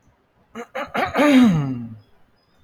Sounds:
Throat clearing